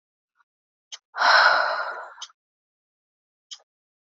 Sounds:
Sigh